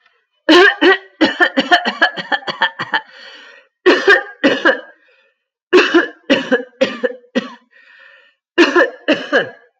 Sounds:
Cough